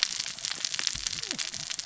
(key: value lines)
label: biophony, cascading saw
recorder: SoundTrap 600 or HydroMoth